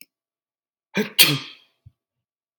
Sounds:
Sneeze